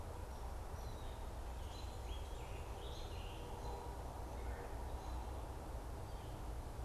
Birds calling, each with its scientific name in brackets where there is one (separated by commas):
American Robin (Turdus migratorius), Red-bellied Woodpecker (Melanerpes carolinus), Scarlet Tanager (Piranga olivacea)